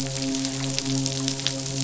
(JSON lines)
{"label": "biophony, midshipman", "recorder": "SoundTrap 500"}